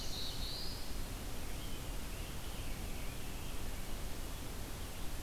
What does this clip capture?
Black-throated Blue Warbler, American Robin